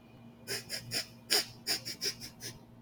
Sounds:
Sniff